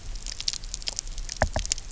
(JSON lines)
{"label": "biophony, knock", "recorder": "SoundTrap 300"}